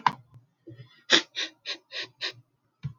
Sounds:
Sniff